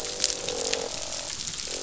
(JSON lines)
{"label": "biophony, croak", "recorder": "SoundTrap 500"}